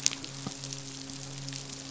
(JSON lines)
{"label": "biophony, midshipman", "recorder": "SoundTrap 500"}